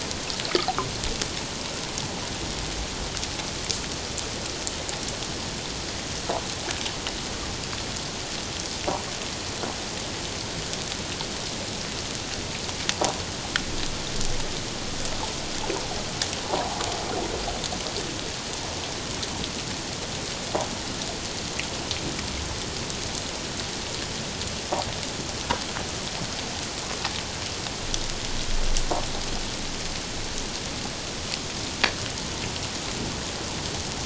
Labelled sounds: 16.5	16.8	water noise, 0.78 to 1.0 kHz

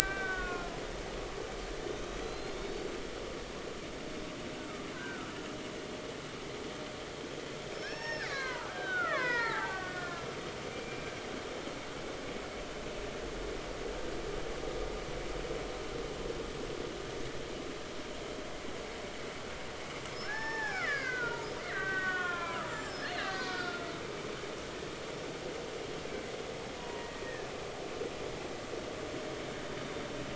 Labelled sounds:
0.0	0.7	killer whale, Bigg's (transient), 1.0 to 1.6 kHz
1.9	2.9	killer whale, Bigg's (transient), 3.4 to 6.1 kHz
4.6	5.3	killer whale, Bigg's (transient), 1.2 to 1.6 kHz
7.7	11.0	killer whale, Bigg's (transient), 0.80 to 5.6 kHz
20.2	23.9	killer whale, Bigg's (transient), 0.80 to 7.6 kHz
26.8	27.5	killer whale, Bigg's (transient), 0.90 to 1.9 kHz

